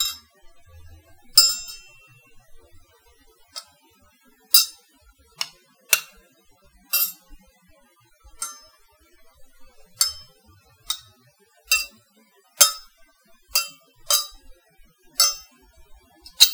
Does the object the person is hitting break?
no